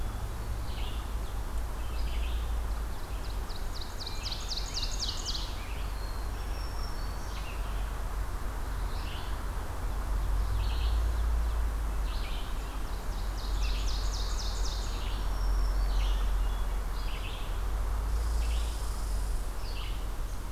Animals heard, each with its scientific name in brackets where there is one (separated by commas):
Hermit Thrush (Catharus guttatus), Red-eyed Vireo (Vireo olivaceus), Scarlet Tanager (Piranga olivacea), Black-throated Green Warbler (Setophaga virens), Ovenbird (Seiurus aurocapilla), Red Squirrel (Tamiasciurus hudsonicus)